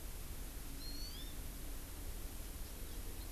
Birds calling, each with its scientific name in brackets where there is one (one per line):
Hawaii Amakihi (Chlorodrepanis virens)